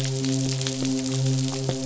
{"label": "biophony, midshipman", "recorder": "SoundTrap 500"}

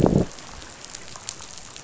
{"label": "biophony, growl", "recorder": "SoundTrap 500"}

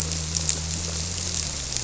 {"label": "biophony", "recorder": "SoundTrap 300"}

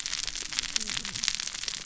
{"label": "biophony, cascading saw", "recorder": "SoundTrap 600 or HydroMoth"}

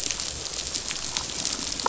{"label": "biophony, damselfish", "recorder": "SoundTrap 500"}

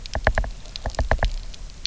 {"label": "biophony, knock", "recorder": "SoundTrap 300"}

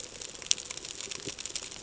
{"label": "ambient", "recorder": "HydroMoth"}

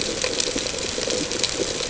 {"label": "ambient", "recorder": "HydroMoth"}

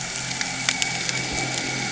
{"label": "anthrophony, boat engine", "recorder": "HydroMoth"}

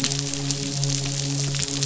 {"label": "biophony, midshipman", "recorder": "SoundTrap 500"}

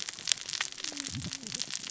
{"label": "biophony, cascading saw", "recorder": "SoundTrap 600 or HydroMoth"}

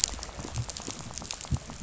{"label": "biophony, rattle", "recorder": "SoundTrap 500"}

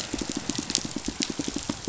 {"label": "biophony, pulse", "recorder": "SoundTrap 500"}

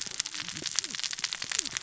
{"label": "biophony, cascading saw", "recorder": "SoundTrap 600 or HydroMoth"}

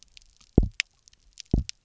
{"label": "biophony, double pulse", "recorder": "SoundTrap 300"}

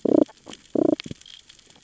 {"label": "biophony, damselfish", "recorder": "SoundTrap 600 or HydroMoth"}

